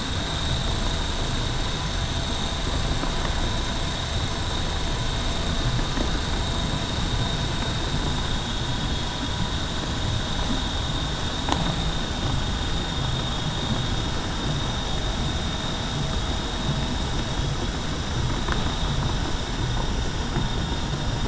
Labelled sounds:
11.9	12.3	vessel noise, 5.98 to 6.02 kHz
19.5	20.1	vessel noise, 5.9 to 6.0 kHz

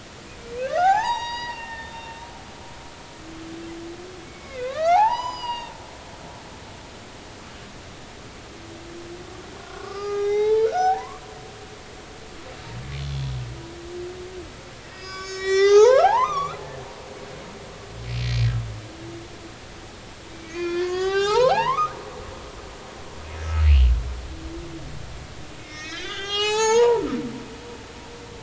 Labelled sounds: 0.6	2.2	humpback whale, 0.80 to 6.8 kHz
4.2	5.7	humpback whale, 0.80 to 7.0 kHz
9.6	11.7	humpback whale, 0.80 to 6.0 kHz
12.9	13.2	humpback whale, 4.0 to 4.3 kHz
14.9	16.9	humpback whale, 0.80 to 7.4 kHz
20.3	22.0	humpback whale, 0.80 to 6.2 kHz
25.6	27.9	humpback whale, 0.80 to 7.7 kHz

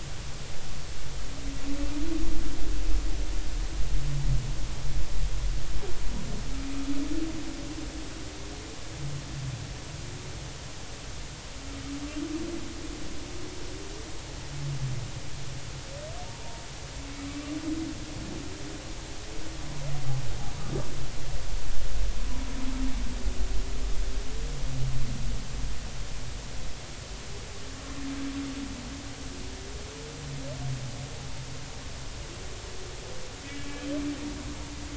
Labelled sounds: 16.2	16.6	humpback whale, 0.86 to 1.0 kHz
33.4	33.8	humpback whale, 2.2 to 2.3 kHz

